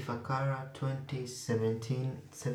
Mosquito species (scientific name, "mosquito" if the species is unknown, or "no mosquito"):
Anopheles arabiensis